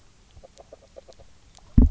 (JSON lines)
{"label": "biophony, grazing", "recorder": "SoundTrap 300"}